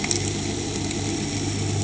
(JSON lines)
{"label": "anthrophony, boat engine", "recorder": "HydroMoth"}